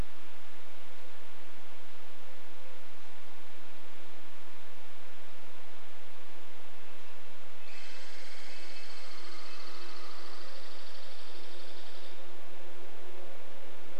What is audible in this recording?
Red-breasted Nuthatch song, Douglas squirrel rattle, woodpecker drumming